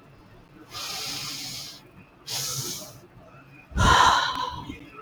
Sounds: Sigh